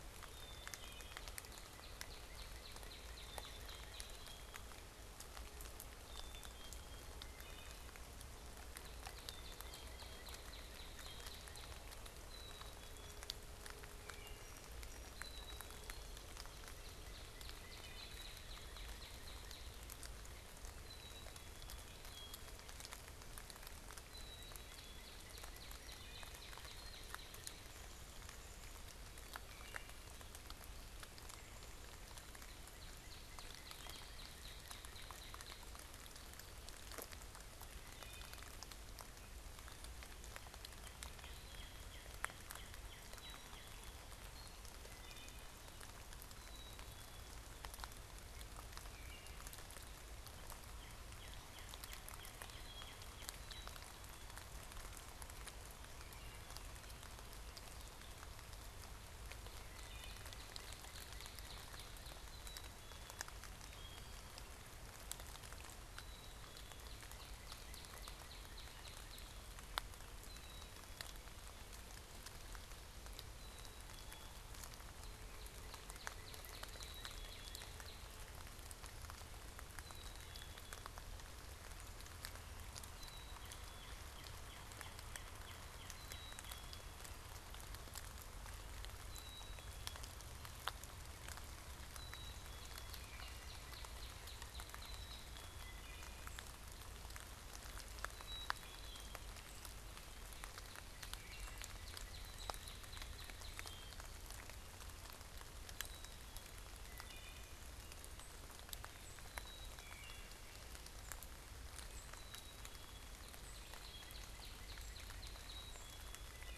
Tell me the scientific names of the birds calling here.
Poecile atricapillus, Hylocichla mustelina, Cardinalis cardinalis, unidentified bird